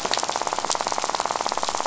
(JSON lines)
{"label": "biophony, rattle", "recorder": "SoundTrap 500"}